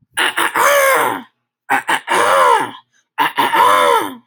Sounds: Throat clearing